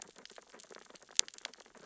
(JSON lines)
{"label": "biophony, sea urchins (Echinidae)", "recorder": "SoundTrap 600 or HydroMoth"}